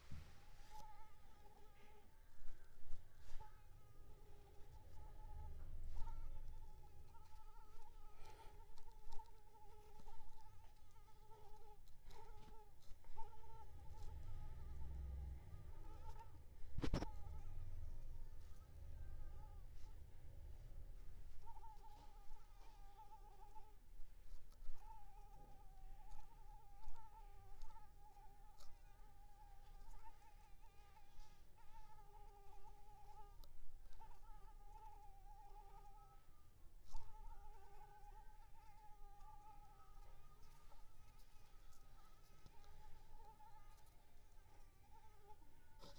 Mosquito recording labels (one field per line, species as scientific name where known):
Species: Anopheles arabiensis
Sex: male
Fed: unfed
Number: one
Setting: cup